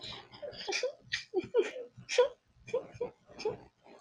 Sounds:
Sniff